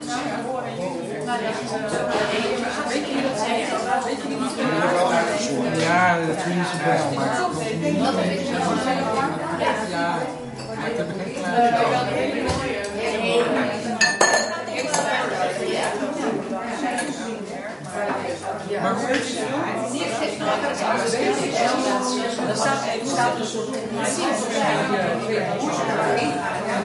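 People are talking over each other. 0.0 - 26.8
A device thumps muffled in the distance. 1.9 - 2.8
A quiet clicking sound. 12.4 - 13.1
Glass falling. 13.9 - 14.7
Something hits against glass twice. 15.7 - 17.6

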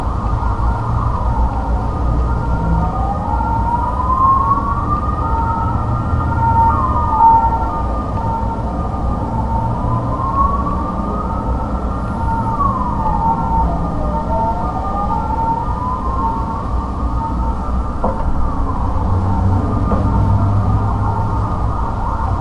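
The distant sirens of multiple emergency vehicles ring continuously and then fade out. 0.0 - 22.4
An object is placed on a hard surface. 18.0 - 18.5
An object is placed on a hard surface. 19.9 - 20.1

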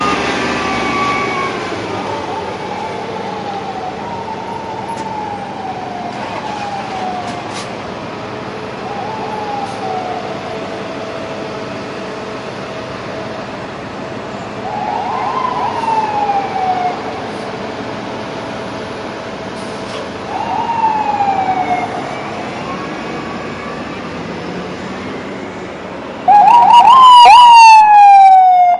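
An ambulance siren is sounding. 0.0 - 4.2
The wind is blowing. 0.0 - 28.8
A police siren sounds in the distance. 1.9 - 7.5
A car door is being closed. 4.7 - 5.6
Someone starts a car. 6.0 - 7.2
A police siren sounds in the distance. 8.8 - 11.6
A police siren sounds nearby. 14.6 - 17.2
A police siren sounds nearby. 20.2 - 22.2
A car engine revs sharply. 22.2 - 26.2
A loud and disturbing police siren. 26.3 - 28.8

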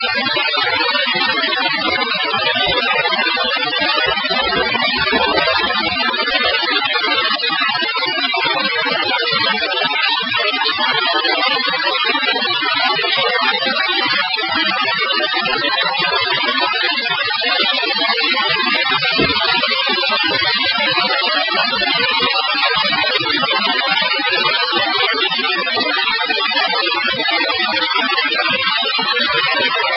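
A digital noise is emitted repeatedly in a muffled, uniform pattern. 0.0 - 30.0

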